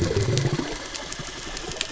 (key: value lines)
label: anthrophony, boat engine
recorder: SoundTrap 300